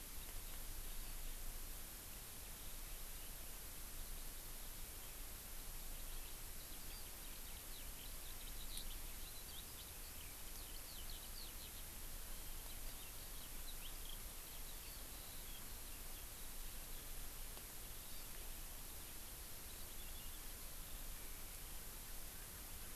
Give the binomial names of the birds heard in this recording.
Alauda arvensis, Chlorodrepanis virens